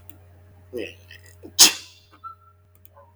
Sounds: Sneeze